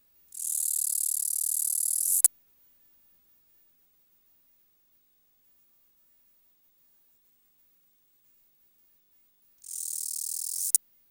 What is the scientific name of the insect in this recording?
Acrometopa macropoda